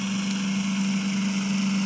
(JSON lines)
{"label": "anthrophony, boat engine", "recorder": "SoundTrap 300"}